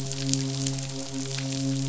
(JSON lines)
{"label": "biophony, midshipman", "recorder": "SoundTrap 500"}